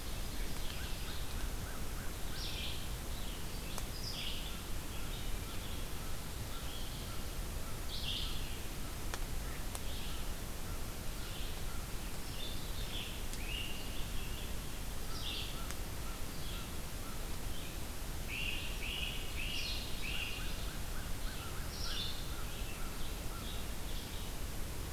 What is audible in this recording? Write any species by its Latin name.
Seiurus aurocapilla, Vireo olivaceus, Corvus brachyrhynchos, Myiarchus crinitus